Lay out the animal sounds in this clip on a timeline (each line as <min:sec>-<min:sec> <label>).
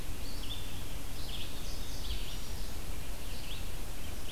0:00.0-0:04.3 Red-eyed Vireo (Vireo olivaceus)
0:01.3-0:02.3 Indigo Bunting (Passerina cyanea)